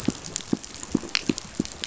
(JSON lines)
{"label": "biophony, pulse", "recorder": "SoundTrap 500"}